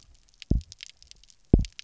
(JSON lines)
{"label": "biophony, double pulse", "recorder": "SoundTrap 300"}